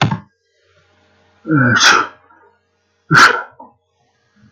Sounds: Sneeze